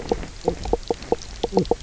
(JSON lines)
{"label": "biophony, knock croak", "recorder": "SoundTrap 300"}